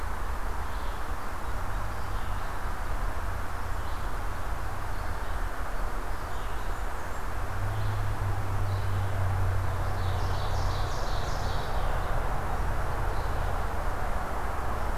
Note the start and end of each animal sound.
[0.00, 14.97] Red-eyed Vireo (Vireo olivaceus)
[6.10, 7.28] Blackburnian Warbler (Setophaga fusca)
[9.61, 11.99] Ovenbird (Seiurus aurocapilla)

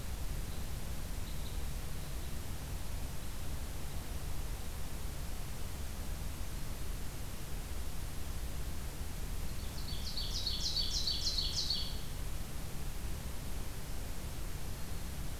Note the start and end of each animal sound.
[0.00, 4.73] Red Crossbill (Loxia curvirostra)
[9.49, 12.00] Ovenbird (Seiurus aurocapilla)
[14.57, 15.21] Black-throated Green Warbler (Setophaga virens)

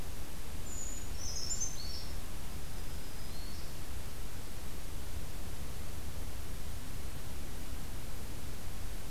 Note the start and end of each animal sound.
[0.61, 2.19] Brown Creeper (Certhia americana)
[2.55, 3.71] Black-throated Green Warbler (Setophaga virens)

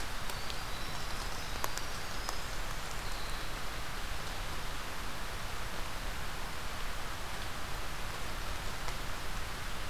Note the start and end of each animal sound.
[0.13, 3.76] Winter Wren (Troglodytes hiemalis)

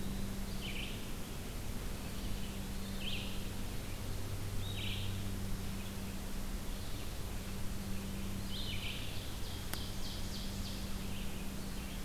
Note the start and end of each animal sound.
[0.00, 12.05] Red-eyed Vireo (Vireo olivaceus)
[9.28, 11.08] Ovenbird (Seiurus aurocapilla)

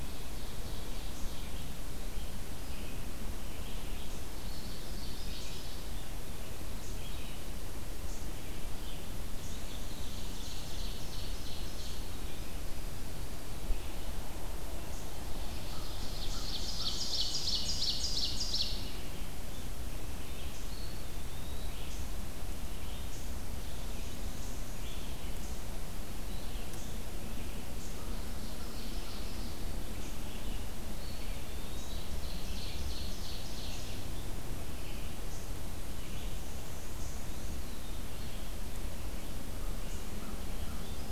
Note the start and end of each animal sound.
[0.00, 1.53] Ovenbird (Seiurus aurocapilla)
[0.00, 36.40] Red-eyed Vireo (Vireo olivaceus)
[4.23, 5.90] Ovenbird (Seiurus aurocapilla)
[9.07, 10.98] Black-and-white Warbler (Mniotilta varia)
[9.26, 12.33] Ovenbird (Seiurus aurocapilla)
[15.21, 19.10] Ovenbird (Seiurus aurocapilla)
[20.43, 22.18] Eastern Wood-Pewee (Contopus virens)
[23.45, 25.03] Black-and-white Warbler (Mniotilta varia)
[26.19, 27.17] Eastern Wood-Pewee (Contopus virens)
[28.27, 29.63] Ovenbird (Seiurus aurocapilla)
[30.83, 32.07] Eastern Wood-Pewee (Contopus virens)
[31.93, 34.25] Ovenbird (Seiurus aurocapilla)
[35.82, 37.72] Black-and-white Warbler (Mniotilta varia)
[37.27, 38.15] Eastern Wood-Pewee (Contopus virens)
[37.94, 41.11] Red-eyed Vireo (Vireo olivaceus)
[39.30, 41.11] American Crow (Corvus brachyrhynchos)

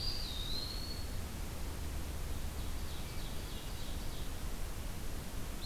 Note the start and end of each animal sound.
[0.00, 1.11] Ovenbird (Seiurus aurocapilla)
[0.00, 1.35] Eastern Wood-Pewee (Contopus virens)
[0.00, 5.66] Red-eyed Vireo (Vireo olivaceus)
[2.27, 4.49] Ovenbird (Seiurus aurocapilla)

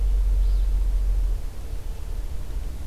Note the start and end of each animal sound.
[0.18, 0.67] Alder Flycatcher (Empidonax alnorum)

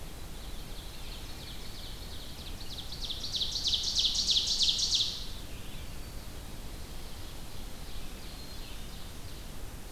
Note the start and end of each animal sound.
[0.00, 5.62] Ovenbird (Seiurus aurocapilla)
[7.36, 9.91] Ovenbird (Seiurus aurocapilla)
[8.08, 9.13] Black-capped Chickadee (Poecile atricapillus)

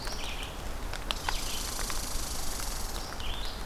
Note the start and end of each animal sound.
[0.00, 3.65] Red-eyed Vireo (Vireo olivaceus)
[1.09, 3.09] Red Squirrel (Tamiasciurus hudsonicus)

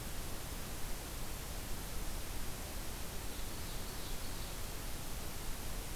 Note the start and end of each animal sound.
[3.23, 4.62] Ovenbird (Seiurus aurocapilla)

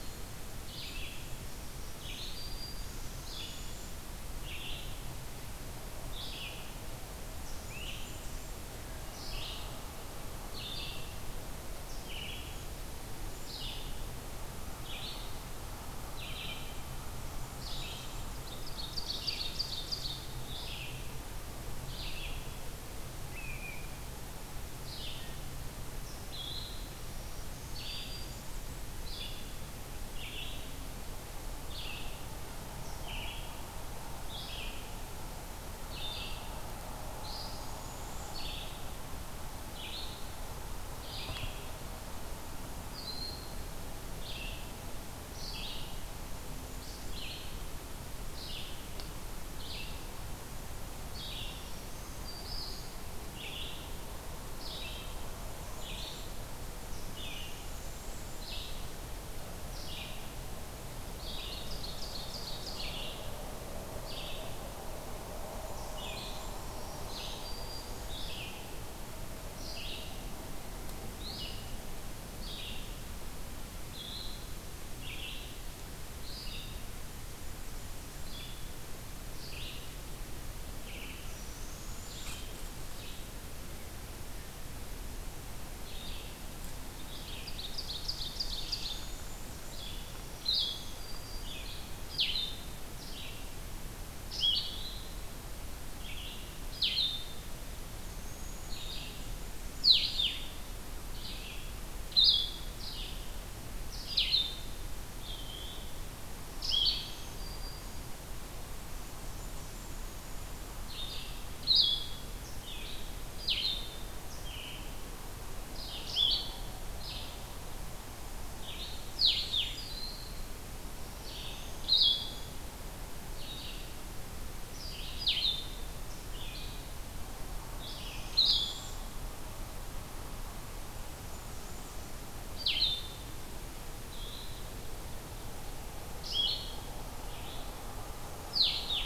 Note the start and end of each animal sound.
[0.00, 44.75] Red-eyed Vireo (Vireo olivaceus)
[1.30, 3.21] Black-throated Green Warbler (Setophaga virens)
[2.53, 4.15] unidentified call
[7.24, 8.70] Blackburnian Warbler (Setophaga fusca)
[7.55, 8.18] Great Crested Flycatcher (Myiarchus crinitus)
[17.02, 18.59] Blackburnian Warbler (Setophaga fusca)
[18.05, 20.39] Ovenbird (Seiurus aurocapilla)
[23.23, 23.91] unidentified call
[26.95, 28.66] Black-throated Green Warbler (Setophaga virens)
[37.19, 38.66] unidentified call
[42.88, 43.74] Broad-winged Hawk (Buteo platypterus)
[45.30, 103.22] Red-eyed Vireo (Vireo olivaceus)
[46.23, 47.56] Blackburnian Warbler (Setophaga fusca)
[51.33, 53.04] Black-throated Green Warbler (Setophaga virens)
[55.20, 56.57] Blackburnian Warbler (Setophaga fusca)
[56.75, 58.49] Black-throated Blue Warbler (Setophaga caerulescens)
[61.03, 63.09] Ovenbird (Seiurus aurocapilla)
[65.04, 67.01] Blackburnian Warbler (Setophaga fusca)
[66.40, 68.26] Black-throated Green Warbler (Setophaga virens)
[77.12, 78.51] Blackburnian Warbler (Setophaga fusca)
[81.06, 82.59] unidentified call
[82.22, 82.48] unknown mammal
[86.95, 89.11] Ovenbird (Seiurus aurocapilla)
[88.79, 89.66] unidentified call
[90.01, 91.81] Black-throated Green Warbler (Setophaga virens)
[90.26, 102.59] Blue-headed Vireo (Vireo solitarius)
[97.72, 99.04] unidentified call
[99.14, 100.55] Blackburnian Warbler (Setophaga fusca)
[103.85, 139.06] Red-eyed Vireo (Vireo olivaceus)
[104.00, 139.06] Blue-headed Vireo (Vireo solitarius)
[105.13, 105.89] unidentified call
[106.49, 108.08] Black-throated Green Warbler (Setophaga virens)
[108.60, 110.16] Blackburnian Warbler (Setophaga fusca)
[118.58, 119.84] Blackburnian Warbler (Setophaga fusca)
[127.83, 129.11] unidentified call
[130.61, 132.45] Blackburnian Warbler (Setophaga fusca)

